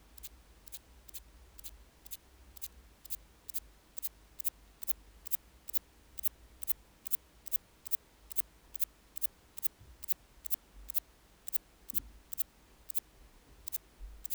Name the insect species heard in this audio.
Antaxius spinibrachius